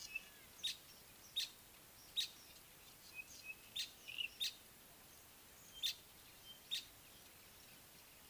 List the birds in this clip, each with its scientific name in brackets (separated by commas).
Pygmy Batis (Batis perkeo), Village Weaver (Ploceus cucullatus)